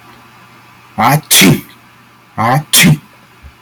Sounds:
Sneeze